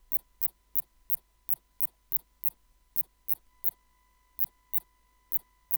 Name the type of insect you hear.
orthopteran